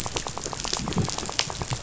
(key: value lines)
label: biophony, rattle
recorder: SoundTrap 500